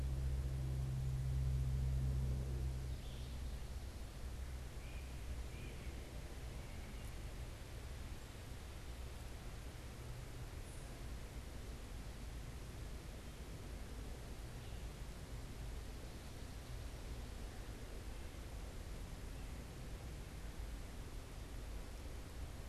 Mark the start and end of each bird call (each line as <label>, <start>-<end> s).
Red-eyed Vireo (Vireo olivaceus), 2.8-3.4 s
Great Crested Flycatcher (Myiarchus crinitus), 4.4-7.2 s